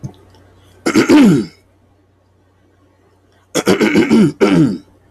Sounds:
Throat clearing